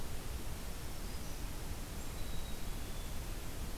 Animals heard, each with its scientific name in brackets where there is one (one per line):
Black-capped Chickadee (Poecile atricapillus)
Black-throated Green Warbler (Setophaga virens)